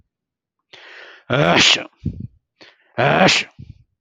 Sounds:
Sneeze